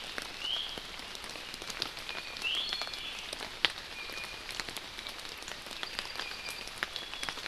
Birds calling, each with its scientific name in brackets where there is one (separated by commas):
Iiwi (Drepanis coccinea), Apapane (Himatione sanguinea)